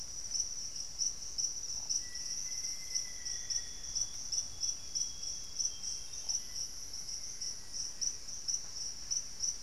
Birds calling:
Amazonian Grosbeak (Cyanoloxia rothschildii), Black-faced Antthrush (Formicarius analis)

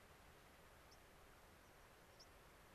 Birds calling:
White-crowned Sparrow (Zonotrichia leucophrys)

